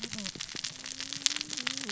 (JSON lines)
{"label": "biophony, cascading saw", "recorder": "SoundTrap 600 or HydroMoth"}